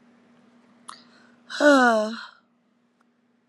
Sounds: Sigh